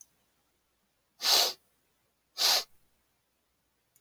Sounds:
Sniff